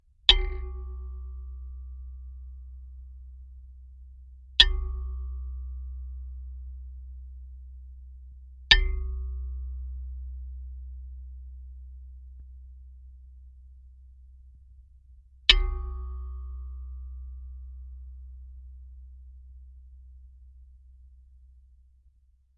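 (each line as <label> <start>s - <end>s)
Metallic thumping sounds of a hammer hitting a plate, slowly fading. 0.2s - 14.5s
Metallic thumping sounds of a hammer hitting a plate, slowly fading. 15.5s - 21.9s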